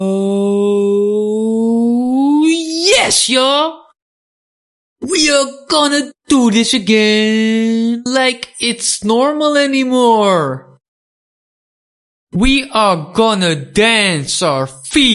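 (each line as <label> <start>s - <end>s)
A man speaks with surprise and then excitement. 0.0s - 3.9s
A man speaks loudly indoors with fragmented, non-fluent speech. 5.0s - 10.8s
A man speaks loudly indoors with fragmented, non-fluent speech. 12.3s - 15.1s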